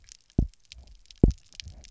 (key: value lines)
label: biophony, double pulse
recorder: SoundTrap 300